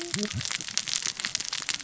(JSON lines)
{"label": "biophony, cascading saw", "recorder": "SoundTrap 600 or HydroMoth"}